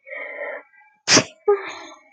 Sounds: Sneeze